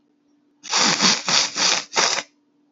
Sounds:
Sniff